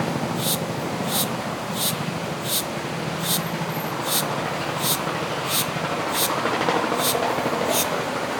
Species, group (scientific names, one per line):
Dorisiana noriegai
Cicadidae